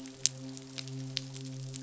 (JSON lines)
{"label": "biophony, midshipman", "recorder": "SoundTrap 500"}